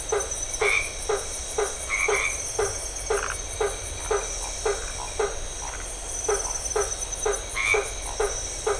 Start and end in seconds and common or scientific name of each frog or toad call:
0.0	8.7	blacksmith tree frog
0.6	2.6	white-edged tree frog
3.0	6.2	Phyllomedusa distincta
7.4	8.0	white-edged tree frog